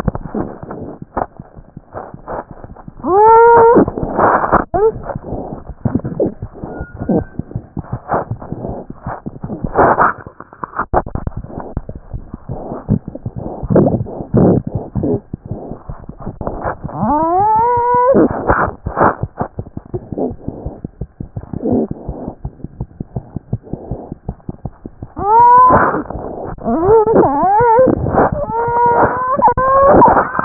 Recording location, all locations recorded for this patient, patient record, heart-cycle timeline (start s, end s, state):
mitral valve (MV)
aortic valve (AV)+aortic valve (AV)+mitral valve (MV)
#Age: Child
#Sex: Female
#Height: 77.0 cm
#Weight: 10.5 kg
#Pregnancy status: False
#Murmur: Absent
#Murmur locations: nan
#Most audible location: nan
#Systolic murmur timing: nan
#Systolic murmur shape: nan
#Systolic murmur grading: nan
#Systolic murmur pitch: nan
#Systolic murmur quality: nan
#Diastolic murmur timing: nan
#Diastolic murmur shape: nan
#Diastolic murmur grading: nan
#Diastolic murmur pitch: nan
#Diastolic murmur quality: nan
#Outcome: Normal
#Campaign: 2014 screening campaign
0.00	22.42	unannotated
22.42	22.50	S1
22.50	22.64	systole
22.64	22.70	S2
22.70	22.80	diastole
22.80	22.86	S1
22.86	23.00	systole
23.00	23.07	S2
23.07	23.16	diastole
23.16	23.22	S1
23.22	23.35	systole
23.35	23.42	S2
23.42	23.53	diastole
23.53	23.60	S1
23.60	23.73	systole
23.73	23.80	S2
23.80	23.91	diastole
23.91	23.99	S1
23.99	24.11	systole
24.11	24.18	S2
24.18	24.29	diastole
24.29	24.35	S1
24.35	24.49	systole
24.49	24.55	S2
24.55	24.65	diastole
24.65	24.72	S1
24.72	24.86	systole
24.86	24.92	S2
24.92	25.02	diastole
25.02	30.45	unannotated